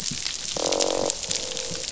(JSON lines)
{"label": "biophony, croak", "recorder": "SoundTrap 500"}